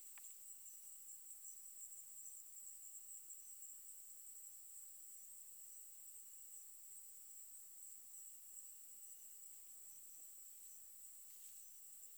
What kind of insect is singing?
orthopteran